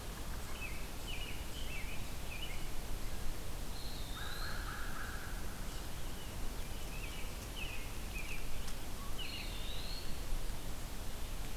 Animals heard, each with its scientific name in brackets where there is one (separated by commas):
American Robin (Turdus migratorius), Eastern Wood-Pewee (Contopus virens), American Crow (Corvus brachyrhynchos)